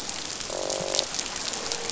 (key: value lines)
label: biophony, croak
recorder: SoundTrap 500